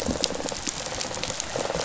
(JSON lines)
{"label": "biophony, rattle response", "recorder": "SoundTrap 500"}